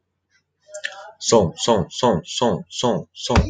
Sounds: Sigh